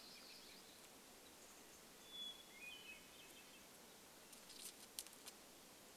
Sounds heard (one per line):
Hermit Thrush song
American Robin call
warbler song